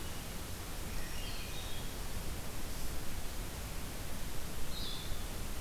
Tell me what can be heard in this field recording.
Blue-headed Vireo, Hermit Thrush